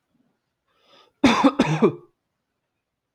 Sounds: Cough